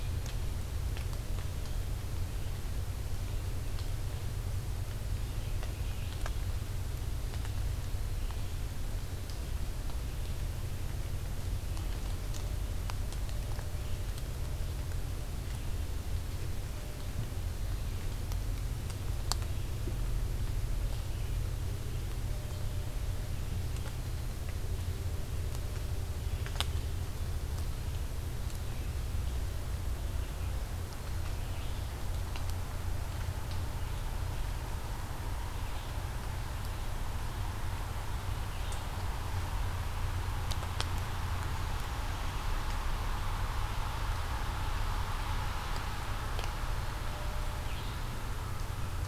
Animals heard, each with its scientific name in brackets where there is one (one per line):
Red-eyed Vireo (Vireo olivaceus)